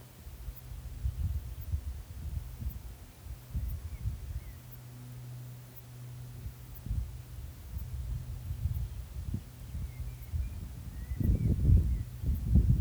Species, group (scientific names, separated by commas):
Cicadetta cantilatrix, Cicadidae